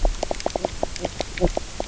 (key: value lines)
label: biophony, knock croak
recorder: SoundTrap 300